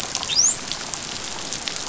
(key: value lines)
label: biophony, dolphin
recorder: SoundTrap 500